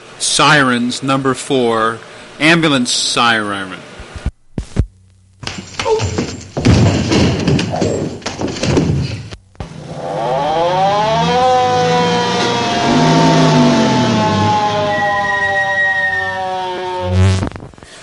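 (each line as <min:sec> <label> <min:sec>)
0:00.0 A man is making an announcement. 0:04.9
0:05.4 Foot stomping and sounds of physical activity indoors. 0:09.5
0:09.6 A siren gradually increases in volume. 0:18.0
0:11.3 An engine is running in the distance. 0:15.5
0:15.6 Creaking sound diminishing. 0:17.6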